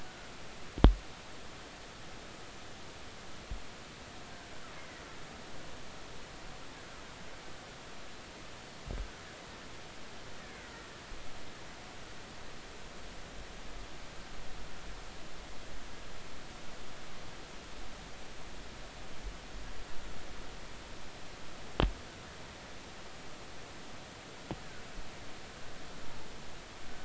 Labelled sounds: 4.8	5.0	killer whale, Bigg's (transient), 1.9 to 2.2 kHz
10.6	10.9	killer whale, Bigg's (transient), 1.3 to 1.5 kHz

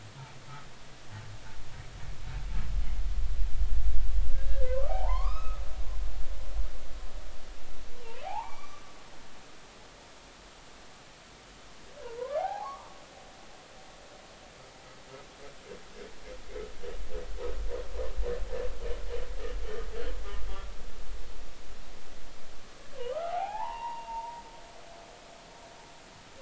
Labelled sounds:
4.3	5.6	humpback whale, 0.80 to 3.9 kHz
8.2	8.8	humpback whale, 0.80 to 2.4 kHz
12.0	12.9	humpback whale, 0.80 to 1.3 kHz
23.0	24.4	humpback whale, 0.80 to 3.0 kHz

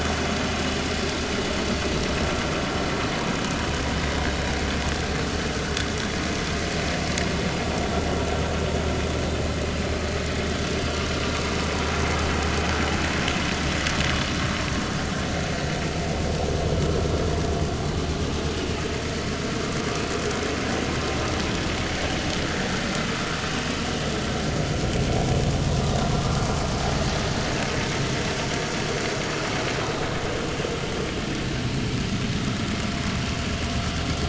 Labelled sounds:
1.1	1.4	vessel noise, 3.6 to 3.8 kHz

